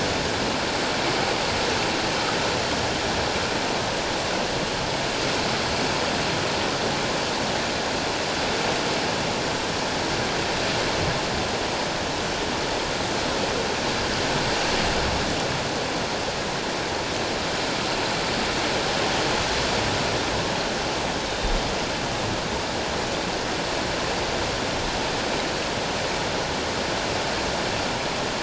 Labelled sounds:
21.3	21.6	humpback whale, 3.6 to 3.8 kHz

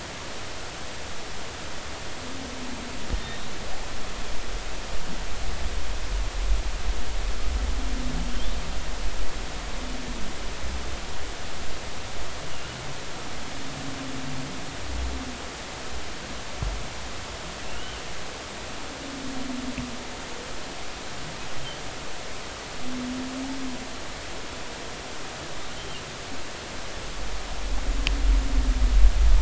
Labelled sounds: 3.1	3.5	humpback whale, 1.8 to 3.8 kHz

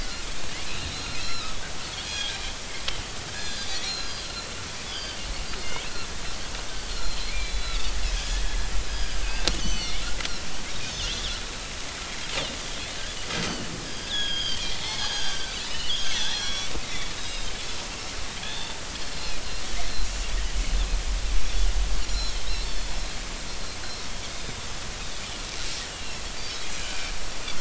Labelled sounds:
0.9	1.6	Pacific white-sided dolphin, 1.2 to 4.2 kHz
1.8	2.4	Pacific white-sided dolphin, 1.5 to 4.5 kHz
3.3	4.3	Pacific white-sided dolphin, 1.5 to 5.9 kHz
4.9	5.2	Pacific white-sided dolphin, 2.9 to 4.9 kHz
6.8	10.0	Pacific white-sided dolphin, 1.5 to 6.2 kHz
10.7	11.4	Pacific white-sided dolphin, 2.9 to 3.8 kHz
13.4	16.7	Pacific white-sided dolphin, 0.80 to 6.6 kHz
17.1	17.7	Pacific white-sided dolphin, 3.6 to 6.0 kHz
18.5	18.7	Pacific white-sided dolphin, 4.3 to 4.5 kHz
19.4	19.8	Pacific white-sided dolphin, 3.3 to 3.7 kHz
22.0	23.0	Pacific white-sided dolphin, 3.4 to 7.1 kHz
23.9	24.6	Pacific white-sided dolphin, 3.6 to 5.6 kHz
25.9	26.2	Pacific white-sided dolphin, 2.6 to 3.0 kHz
26.7	27.1	Pacific white-sided dolphin, 1.4 to 2.5 kHz

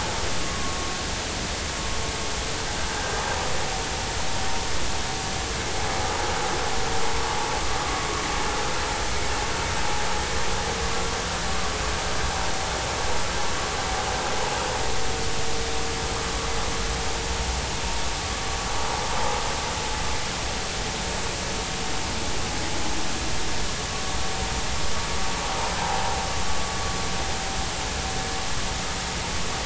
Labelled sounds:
25.8	26.1	vessel noise, 0.80 to 0.99 kHz

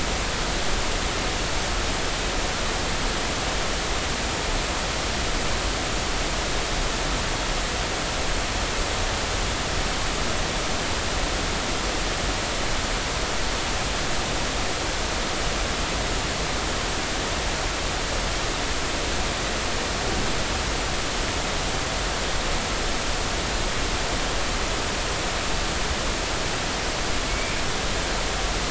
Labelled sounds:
27.3	27.6	killer whale, Bigg's (transient), 2.2 to 2.5 kHz

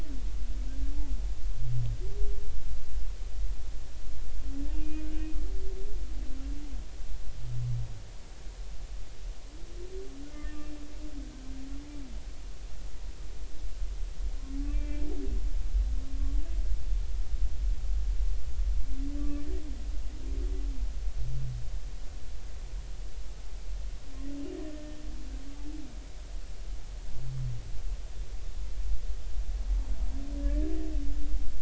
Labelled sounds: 4.8	5.1	humpback whale, 2.4 to 2.5 kHz
10.3	10.7	humpback whale, 1.7 to 2.8 kHz
14.7	15.0	humpback whale, 2.3 to 2.4 kHz
19.2	19.4	humpback whale, 1.1 to 1.2 kHz
30.4	30.7	humpback whale, 1.6 to 1.8 kHz

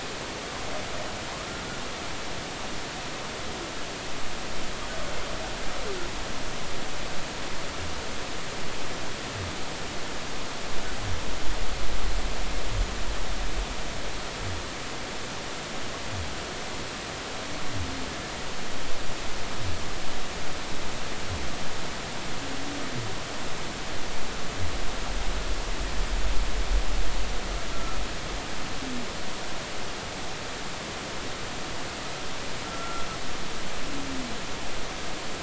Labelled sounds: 27.7	28.0	humpback whale, 1.2 to 1.4 kHz
32.7	33.1	humpback whale, 1.3 to 1.4 kHz

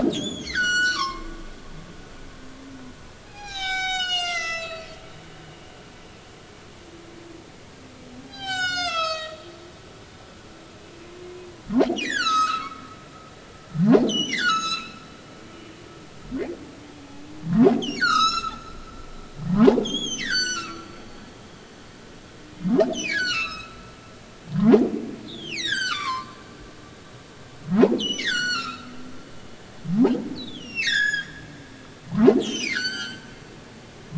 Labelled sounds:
0.1	1.4	humpback whale, 0.93 to 7.6 kHz
3.2	5.0	humpback whale, 0.80 to 8.0 kHz
8.3	9.4	humpback whale, 0.80 to 8.0 kHz
11.7	12.9	humpback whale, 0.80 to 7.0 kHz
14.1	15.0	humpback whale, 1.2 to 8.0 kHz
15.3	15.7	humpback whale, 2.1 to 2.5 kHz
17.8	18.7	humpback whale, 1.0 to 8.0 kHz
19.5	20.9	humpback whale, 0.80 to 7.7 kHz
22.9	23.8	humpback whale, 1.0 to 6.7 kHz
24.6	26.4	humpback whale, 0.80 to 7.1 kHz
26.7	29.0	humpback whale, 0.80 to 7.9 kHz
30.3	31.3	humpback whale, 1.5 to 7.3 kHz
32.1	33.3	humpback whale, 0.80 to 7.9 kHz

